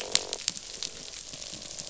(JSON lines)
{"label": "biophony, croak", "recorder": "SoundTrap 500"}